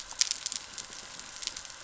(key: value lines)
label: anthrophony, boat engine
recorder: SoundTrap 300